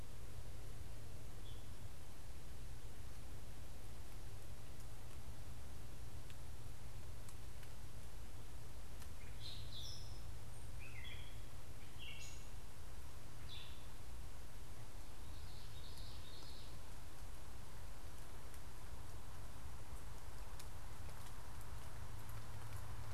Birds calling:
Common Yellowthroat (Geothlypis trichas), unidentified bird, Gray Catbird (Dumetella carolinensis)

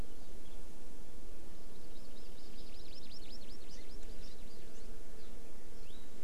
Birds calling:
Hawaii Amakihi (Chlorodrepanis virens)

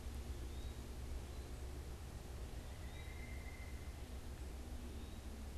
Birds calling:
Eastern Wood-Pewee (Contopus virens), Pileated Woodpecker (Dryocopus pileatus)

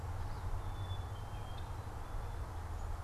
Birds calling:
Black-capped Chickadee (Poecile atricapillus)

